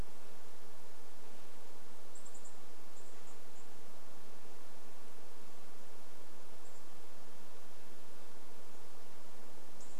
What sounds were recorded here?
unidentified bird chip note